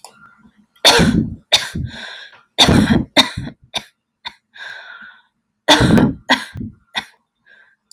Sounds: Cough